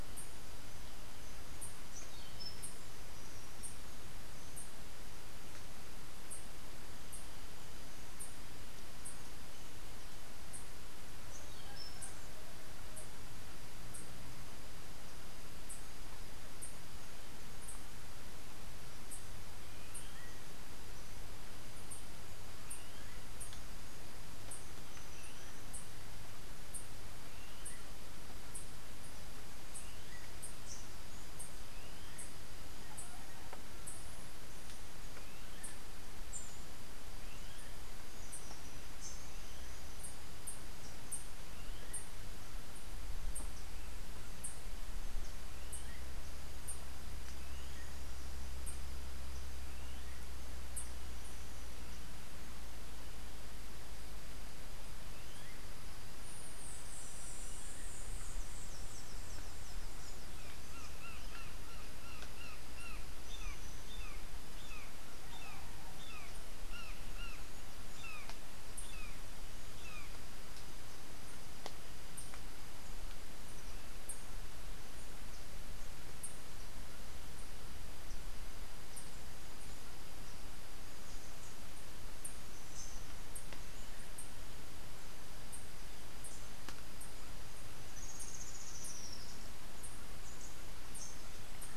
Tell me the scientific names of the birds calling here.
Melozone leucotis, Catharus aurantiirostris, Turdus grayi, Psilorhinus morio, Amazilia tzacatl